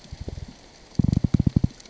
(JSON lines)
{"label": "biophony, knock", "recorder": "SoundTrap 600 or HydroMoth"}